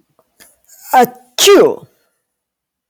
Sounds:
Sneeze